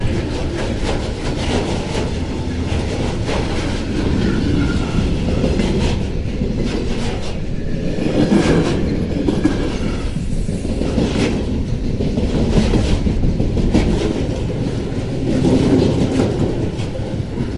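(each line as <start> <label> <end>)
0.0 A train passes by with a rhythmic clickety-clack sound. 17.5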